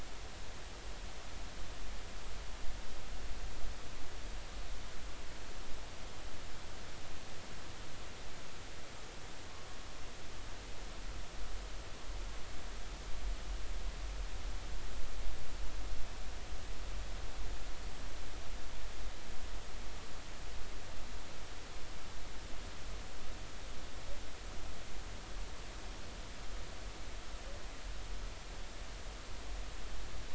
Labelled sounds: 9.5	9.8	humpback whale, 1.0 to 1.2 kHz

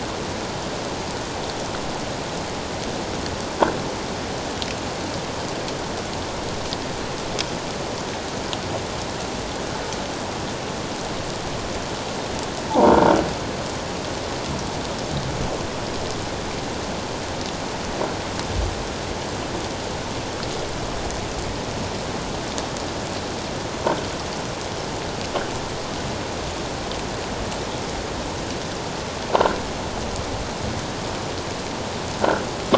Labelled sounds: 12.7	12.9	croaking sound likely from a nearby submerged object, 0.78 to 1.2 kHz

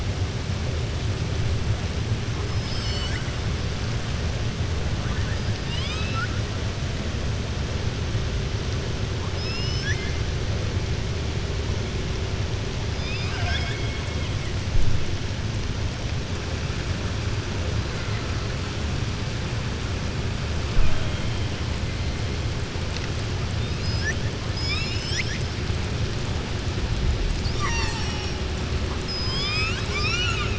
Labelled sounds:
5.6	6.3	killer whale, southern resident, 1.2 to 7.9 kHz
9.2	10.2	killer whale, southern resident, 1.6 to 6.2 kHz
12.9	14.0	killer whale, southern resident, 0.70 to 5.5 kHz
27.5	28.4	killer whale, southern resident, 0.86 to 7.9 kHz
28.9	30.5	killer whale, southern resident, 1.1 to 7.9 kHz

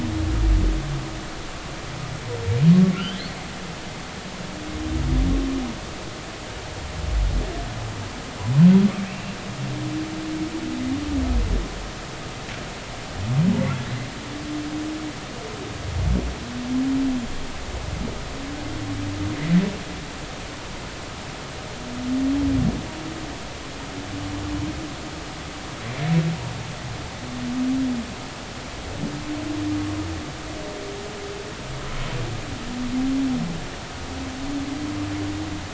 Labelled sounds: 3.0	3.3	humpback whale, 2.6 to 3.6 kHz

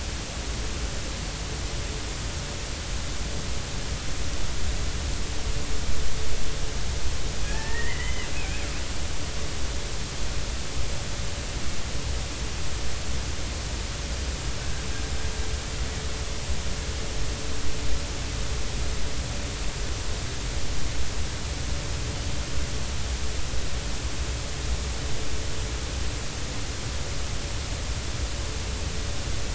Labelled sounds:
7.4	8.7	killer whale, Bigg's (transient), 0.83 to 3.1 kHz

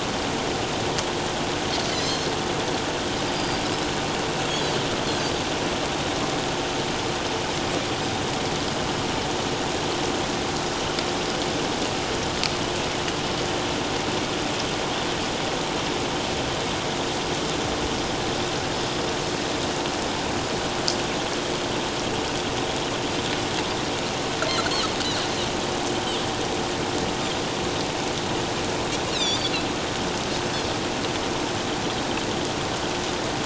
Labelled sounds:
3.4	3.6	Pacific white-sided dolphin, 4.6 to 4.9 kHz
29.1	29.5	Pacific white-sided dolphin, 2.2 to 5.6 kHz

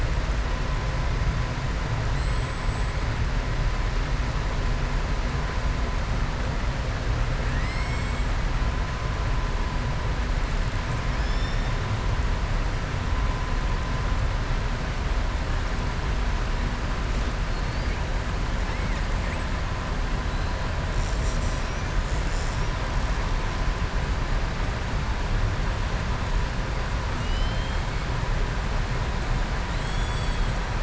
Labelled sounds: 7.4	8.3	killer whale, southern resident, 1.6 to 7.9 kHz
27.1	27.8	killer whale, southern resident, 2.8 to 5.2 kHz
29.7	30.5	killer whale, southern resident, 2.6 to 7.9 kHz

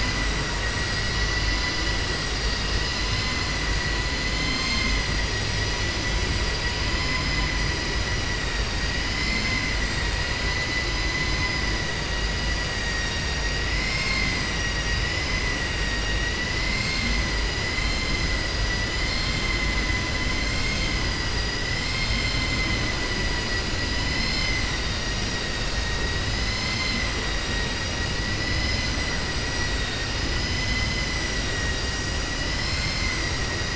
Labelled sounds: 20.5	20.9	vessel noise, 1.5 to 3.7 kHz
21.7	22.8	vessel noise, 2.0 to 5.6 kHz
30.4	31.1	vessel noise, 2.0 to 4.1 kHz
32.6	33.2	vessel noise, 1.1 to 3.1 kHz

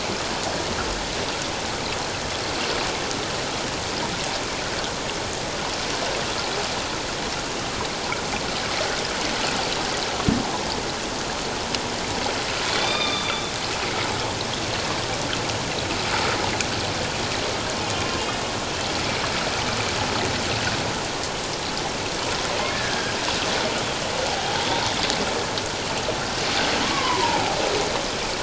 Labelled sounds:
12.7	13.5	humpback whale, 1.1 to 4.8 kHz
22.7	23.1	humpback whale, 1.5 to 1.8 kHz
24.3	24.7	humpback whale, 0.78 to 0.97 kHz
26.8	27.5	humpback whale, 0.78 to 1.2 kHz

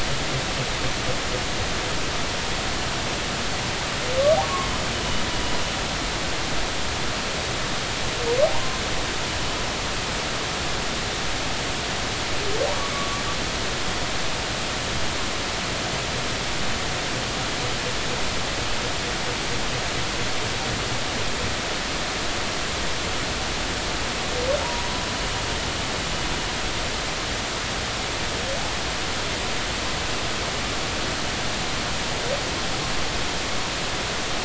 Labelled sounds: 8.5	8.8	humpback whale, 0.86 to 1.1 kHz
12.9	13.2	humpback whale, 1.1 to 1.2 kHz
24.6	24.9	humpback whale, 0.90 to 1.0 kHz

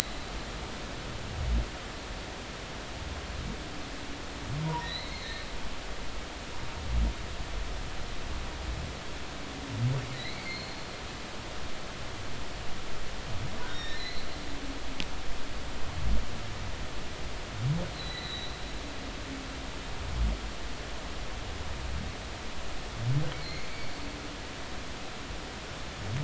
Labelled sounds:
4.6	5.5	humpback whale, 0.90 to 4.4 kHz
10.1	10.8	humpback whale, 1.8 to 4.4 kHz
13.7	14.3	humpback whale, 1.7 to 5.7 kHz
17.9	18.6	humpback whale, 1.9 to 4.3 kHz
23.3	23.9	humpback whale, 2.0 to 4.4 kHz

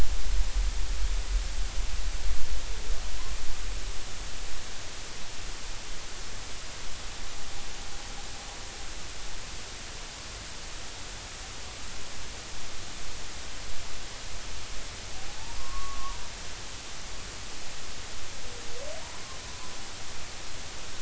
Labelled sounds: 0.2	0.6	humpback whale, 0.96 to 1.1 kHz
15.3	16.2	humpback whale, 0.80 to 1.2 kHz

